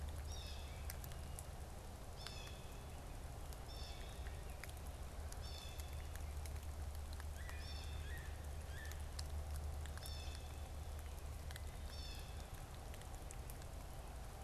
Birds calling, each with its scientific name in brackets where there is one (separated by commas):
Yellow-bellied Sapsucker (Sphyrapicus varius), Blue Jay (Cyanocitta cristata)